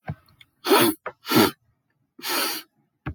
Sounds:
Sniff